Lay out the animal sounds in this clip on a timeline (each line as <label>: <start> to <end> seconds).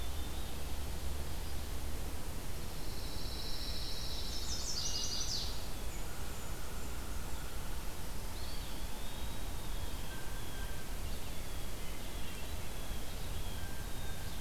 Pine Warbler (Setophaga pinus): 2.3 to 4.7 seconds
Chestnut-sided Warbler (Setophaga pensylvanica): 4.4 to 5.8 seconds
Blackburnian Warbler (Setophaga fusca): 5.4 to 7.1 seconds
American Crow (Corvus brachyrhynchos): 6.0 to 7.9 seconds
Eastern Wood-Pewee (Contopus virens): 8.3 to 10.2 seconds
Blue Jay (Cyanocitta cristata): 10.0 to 14.4 seconds